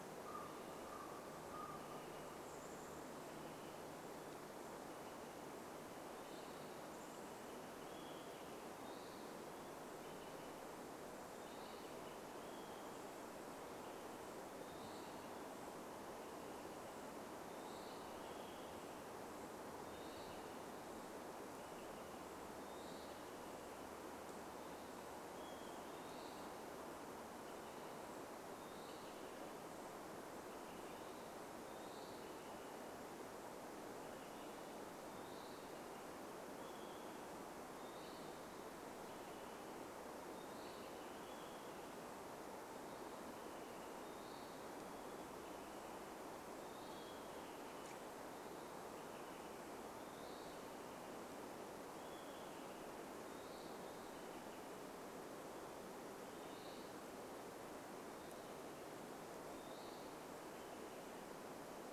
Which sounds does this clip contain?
Common Raven call, Chestnut-backed Chickadee call, Olive-sided Flycatcher call, Olive-sided Flycatcher song, Western Wood-Pewee song